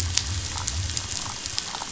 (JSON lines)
{"label": "biophony", "recorder": "SoundTrap 500"}